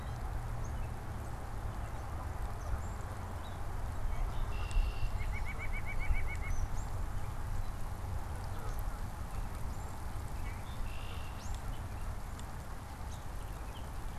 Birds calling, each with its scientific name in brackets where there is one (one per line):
Red-winged Blackbird (Agelaius phoeniceus)
White-breasted Nuthatch (Sitta carolinensis)
Gray Catbird (Dumetella carolinensis)